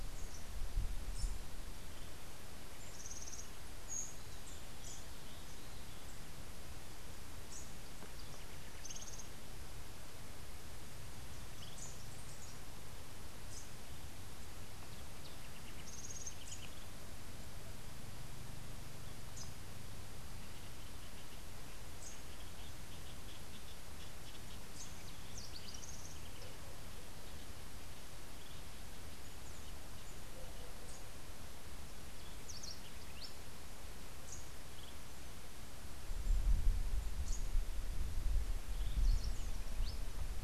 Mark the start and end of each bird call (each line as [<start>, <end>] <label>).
[8.18, 9.48] House Wren (Troglodytes aedon)
[13.38, 13.68] Rufous-capped Warbler (Basileuterus rufifrons)
[15.38, 16.78] House Wren (Troglodytes aedon)
[19.28, 19.58] Rufous-capped Warbler (Basileuterus rufifrons)
[21.88, 22.18] Rufous-capped Warbler (Basileuterus rufifrons)
[24.78, 26.18] House Wren (Troglodytes aedon)
[32.28, 33.58] House Wren (Troglodytes aedon)
[34.18, 34.48] Rufous-capped Warbler (Basileuterus rufifrons)
[37.18, 37.48] Rufous-capped Warbler (Basileuterus rufifrons)
[38.58, 39.98] House Wren (Troglodytes aedon)